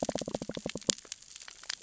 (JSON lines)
{"label": "biophony, knock", "recorder": "SoundTrap 600 or HydroMoth"}